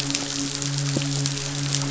{"label": "biophony, midshipman", "recorder": "SoundTrap 500"}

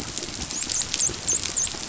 {"label": "biophony, dolphin", "recorder": "SoundTrap 500"}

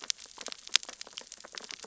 {"label": "biophony, sea urchins (Echinidae)", "recorder": "SoundTrap 600 or HydroMoth"}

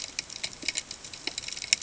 {"label": "ambient", "recorder": "HydroMoth"}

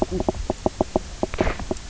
{"label": "biophony, knock croak", "recorder": "SoundTrap 300"}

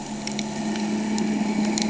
{"label": "ambient", "recorder": "HydroMoth"}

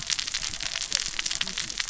{"label": "biophony, cascading saw", "recorder": "SoundTrap 600 or HydroMoth"}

